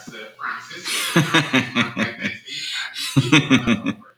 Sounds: Laughter